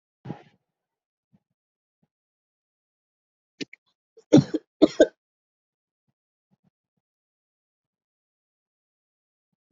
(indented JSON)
{
  "expert_labels": [
    {
      "quality": "ok",
      "cough_type": "dry",
      "dyspnea": false,
      "wheezing": false,
      "stridor": false,
      "choking": false,
      "congestion": false,
      "nothing": true,
      "diagnosis": "upper respiratory tract infection",
      "severity": "mild"
    }
  ],
  "age": 35,
  "gender": "male",
  "respiratory_condition": false,
  "fever_muscle_pain": false,
  "status": "healthy"
}